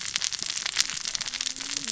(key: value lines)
label: biophony, cascading saw
recorder: SoundTrap 600 or HydroMoth